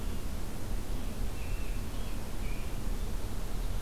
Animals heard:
American Robin (Turdus migratorius)

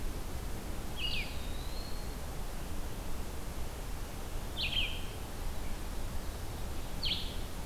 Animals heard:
Blue-headed Vireo (Vireo solitarius), Eastern Wood-Pewee (Contopus virens)

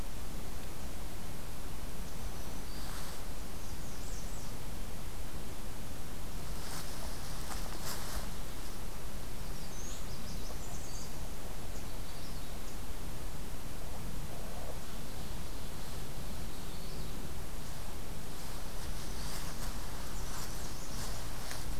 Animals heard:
Magnolia Warbler (Setophaga magnolia), unidentified call, Black-throated Green Warbler (Setophaga virens), American Redstart (Setophaga ruticilla)

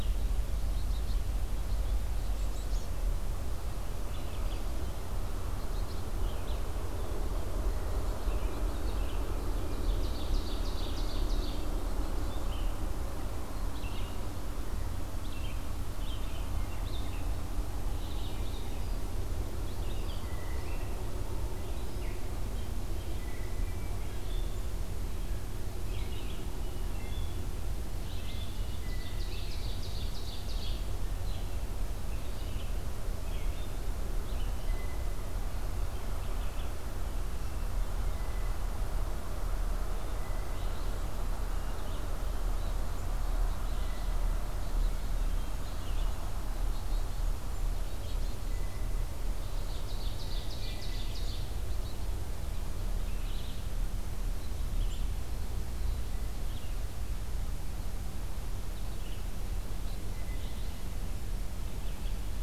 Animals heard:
Blue Jay (Cyanocitta cristata), Black-capped Chickadee (Poecile atricapillus), Hermit Thrush (Catharus guttatus), Ovenbird (Seiurus aurocapilla), Red-eyed Vireo (Vireo olivaceus)

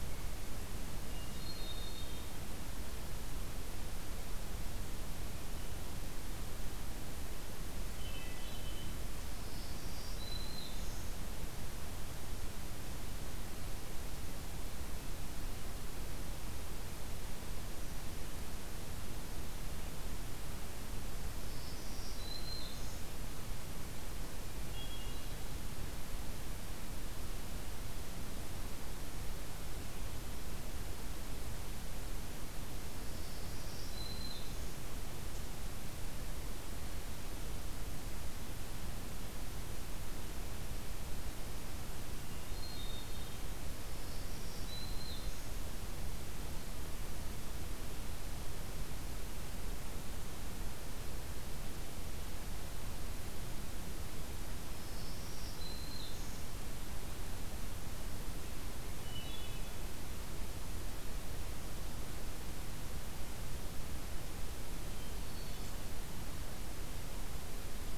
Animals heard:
Hermit Thrush (Catharus guttatus), Black-throated Green Warbler (Setophaga virens)

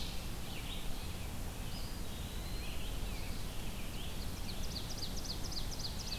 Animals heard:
Ovenbird (Seiurus aurocapilla), American Robin (Turdus migratorius), Eastern Wood-Pewee (Contopus virens), Red-eyed Vireo (Vireo olivaceus)

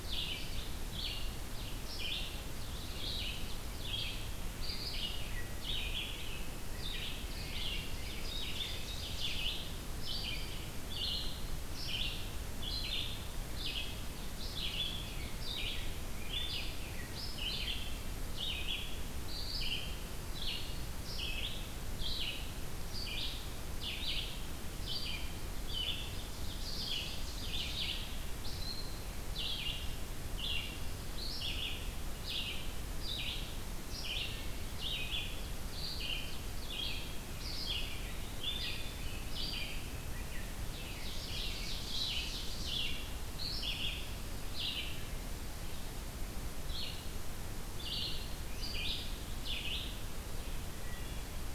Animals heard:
Red-eyed Vireo (Vireo olivaceus), Hermit Thrush (Catharus guttatus), Ovenbird (Seiurus aurocapilla)

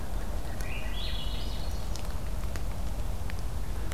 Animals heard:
Swainson's Thrush (Catharus ustulatus)

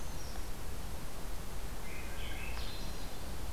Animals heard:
Swainson's Thrush (Catharus ustulatus), Brown Creeper (Certhia americana)

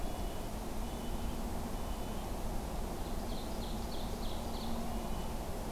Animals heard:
Red-breasted Nuthatch (Sitta canadensis), Ovenbird (Seiurus aurocapilla)

